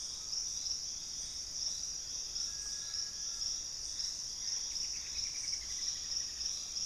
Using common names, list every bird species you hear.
Collared Trogon, Little Tinamou, Gray Antbird, Straight-billed Woodcreeper, Cinnamon-rumped Foliage-gleaner